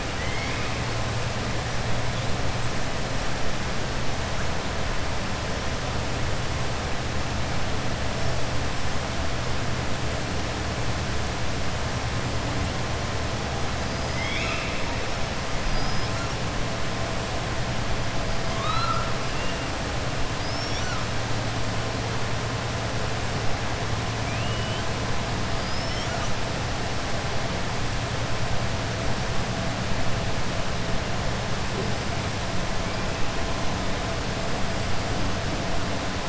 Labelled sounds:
0.1	0.7	killer whale, southern resident, 1.3 to 5.1 kHz
14.0	14.9	killer whale, southern resident, 1.2 to 6.7 kHz
15.6	16.1	killer whale, southern resident, 4.8 to 5.9 kHz
18.5	19.1	killer whale, southern resident, 0.99 to 4.9 kHz
24.2	24.9	killer whale, southern resident, 2.3 to 3.6 kHz
25.5	26.3	killer whale, southern resident, 4.8 to 7.0 kHz

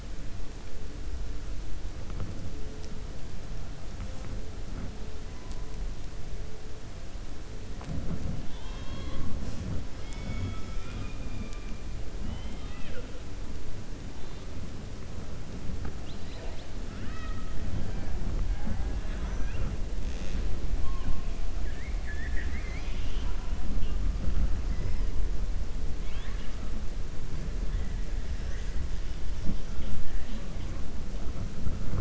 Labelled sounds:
16.8	17.5	killer whale, 1.2 to 5.2 kHz
21.6	23.5	killer whale, 0.98 to 5.8 kHz

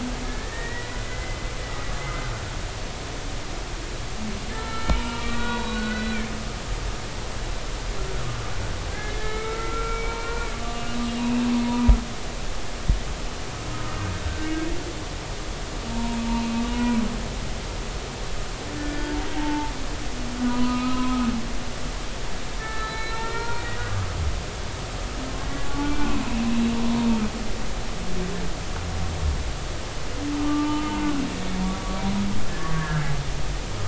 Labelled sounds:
0.2	1.4	humpback whale, 1.6 to 2.1 kHz
2.0	2.3	humpback whale, 2.0 to 2.1 kHz
4.5	6.2	humpback whale, 0.90 to 4.1 kHz
8.9	11.9	humpback whale, 0.93 to 2.9 kHz
14.3	14.5	humpback whale, 1.5 to 1.6 kHz
15.9	17.0	humpback whale, 0.86 to 2.6 kHz
18.7	19.7	humpback whale, 0.80 to 1.8 kHz
20.4	21.2	humpback whale, 0.93 to 2.8 kHz
22.6	23.7	humpback whale, 0.90 to 4.2 kHz
25.5	25.9	humpback whale, 1.1 to 1.2 kHz
30.4	31.0	humpback whale, 0.86 to 3.1 kHz
32.7	33.0	humpback whale, 1.5 to 1.8 kHz

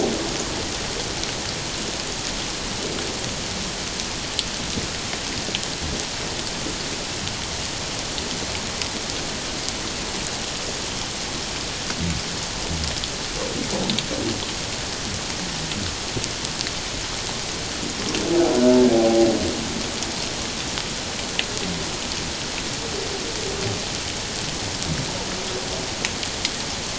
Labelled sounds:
18.9	19.3	humpback whale, 0.78 to 0.84 kHz

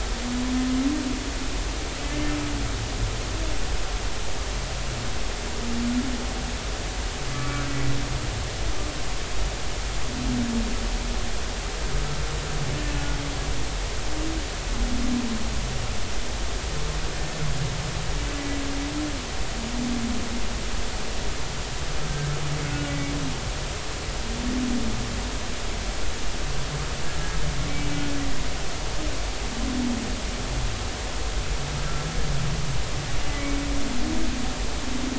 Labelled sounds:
2.0	2.3	humpback whale, 2.0 to 2.1 kHz
7.3	7.6	humpback whale, 1.1 to 1.2 kHz
22.9	23.1	humpback whale, 2.2 to 2.3 kHz

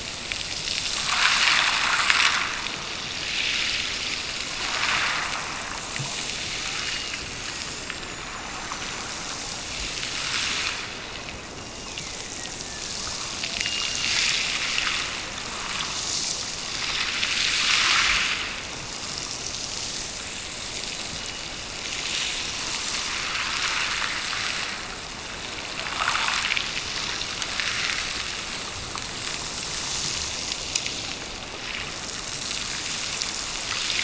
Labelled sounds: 6.8	7.9	killer whale, Bigg's (transient), Gulf of Alaska transient, 1.7 to 3.0 kHz
11.5	13.0	killer whale, Bigg's (transient), Gulf of Alaska transient, 1.6 to 2.8 kHz
13.6	14.3	killer whale, Bigg's (transient), Gulf of Alaska transient, 2.6 to 2.9 kHz

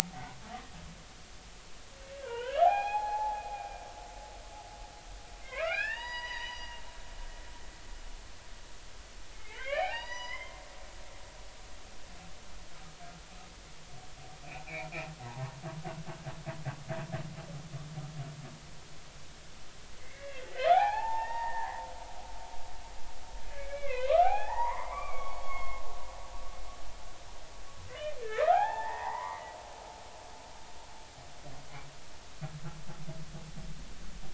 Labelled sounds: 2.2	3.4	humpback whale, 0.80 to 4.3 kHz
5.4	6.8	humpback whale, 0.86 to 6.0 kHz
9.3	10.6	humpback whale, 0.80 to 6.0 kHz
20.0	21.9	humpback whale, 0.80 to 3.5 kHz
23.5	25.8	humpback whale, 0.80 to 4.5 kHz
28.2	29.6	humpback whale, 0.80 to 3.3 kHz

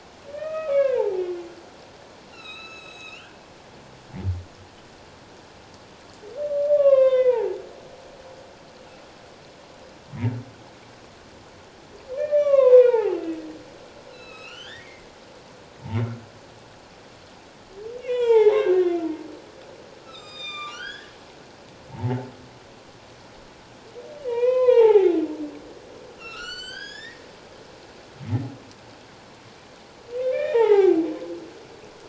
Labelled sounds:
0.3	1.4	humpback whale, 0.78 to 3.3 kHz
2.3	3.3	humpback whale, 1.2 to 8.0 kHz
6.7	7.6	humpback whale, 0.78 to 3.8 kHz
12.2	13.4	humpback whale, 0.78 to 3.8 kHz
14.1	15.1	humpback whale, 1.2 to 7.9 kHz
18.0	18.8	humpback whale, 0.78 to 4.0 kHz
20.0	21.1	humpback whale, 1.1 to 7.5 kHz
24.2	25.1	humpback whale, 0.78 to 4.1 kHz
26.2	27.2	humpback whale, 1.2 to 7.9 kHz
30.2	31.0	humpback whale, 0.78 to 3.8 kHz

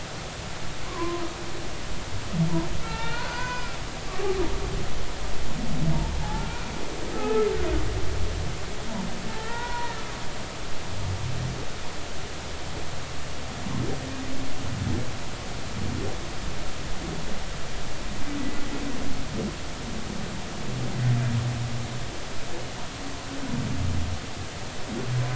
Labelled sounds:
0.9	1.2	humpback whale, 0.93 to 1.2 kHz
2.8	3.8	humpback whale, 0.86 to 5.1 kHz
6.2	6.5	humpback whale, 0.80 to 0.93 kHz
7.1	7.5	humpback whale, 1.2 to 1.4 kHz
9.3	9.9	humpback whale, 0.90 to 2.0 kHz

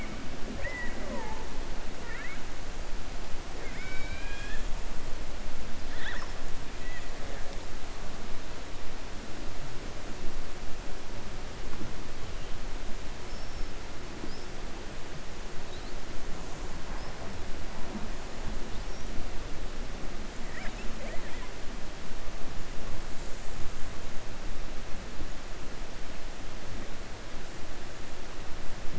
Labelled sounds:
3.5	4.6	killer whale, 1.5 to 5.4 kHz
13.2	13.7	killer whale, 5.2 to 5.6 kHz

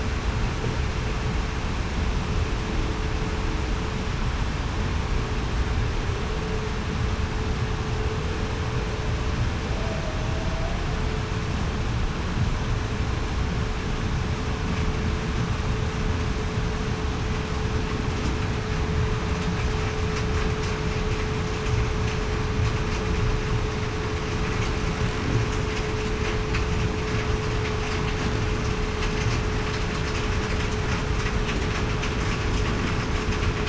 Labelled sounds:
9.7	10.1	humpback whale, 0.61 to 0.70 kHz

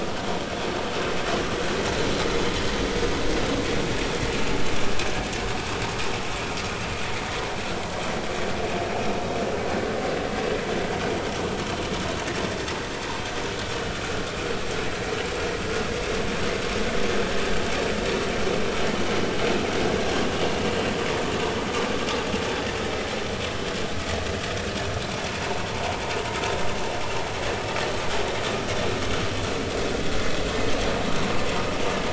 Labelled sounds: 25.3	25.6	vessel noise, 0.86 to 1.1 kHz

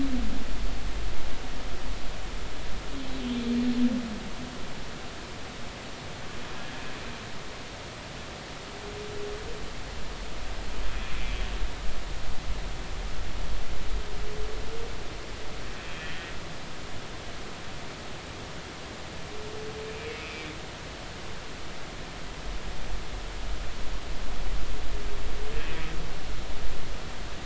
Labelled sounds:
15.8	16.3	humpback whale, 1.7 to 3.3 kHz
20.0	20.5	humpback whale, 2.2 to 2.6 kHz

